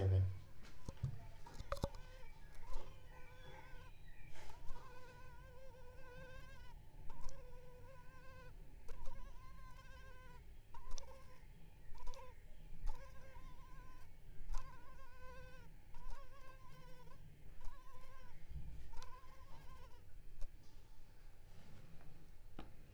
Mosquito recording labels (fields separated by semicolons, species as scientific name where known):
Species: Culex pipiens complex; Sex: female; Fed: unfed; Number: one; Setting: cup